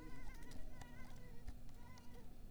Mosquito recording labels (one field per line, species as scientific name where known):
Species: Mansonia uniformis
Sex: female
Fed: unfed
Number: one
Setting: cup